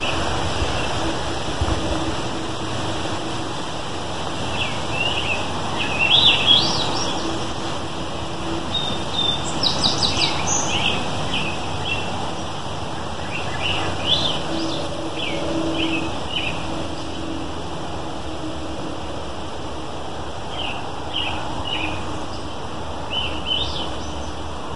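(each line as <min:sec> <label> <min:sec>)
0:00.0 A bird chirping. 0:24.7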